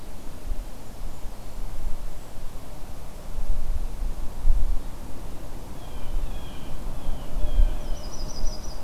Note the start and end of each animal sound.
0.5s-2.4s: Golden-crowned Kinglet (Regulus satrapa)
5.6s-8.3s: Blue Jay (Cyanocitta cristata)
7.8s-8.8s: Yellow-rumped Warbler (Setophaga coronata)

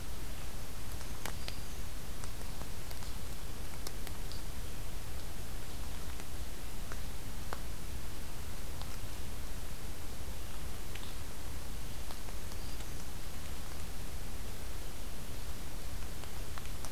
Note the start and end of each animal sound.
0.8s-1.9s: Black-throated Green Warbler (Setophaga virens)
11.7s-13.0s: Black-throated Green Warbler (Setophaga virens)

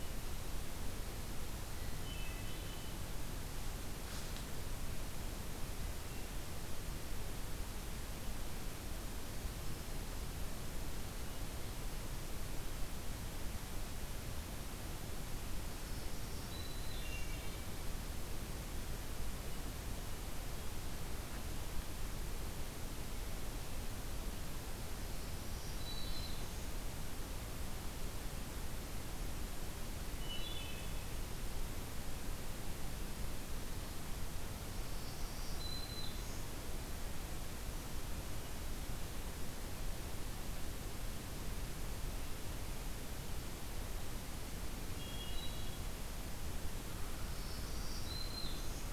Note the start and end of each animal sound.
1.6s-3.2s: Hermit Thrush (Catharus guttatus)
15.6s-17.4s: Black-throated Green Warbler (Setophaga virens)
16.7s-17.8s: Hermit Thrush (Catharus guttatus)
25.3s-26.8s: Black-throated Green Warbler (Setophaga virens)
30.1s-31.0s: Hermit Thrush (Catharus guttatus)
34.7s-36.7s: Black-throated Green Warbler (Setophaga virens)
44.8s-46.1s: Hermit Thrush (Catharus guttatus)
47.0s-48.9s: Black-throated Green Warbler (Setophaga virens)

